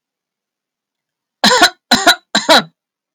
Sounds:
Cough